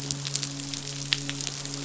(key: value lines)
label: biophony, midshipman
recorder: SoundTrap 500